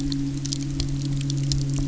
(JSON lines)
{"label": "anthrophony, boat engine", "recorder": "SoundTrap 300"}